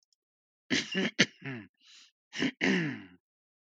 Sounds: Throat clearing